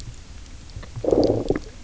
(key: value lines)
label: biophony, low growl
recorder: SoundTrap 300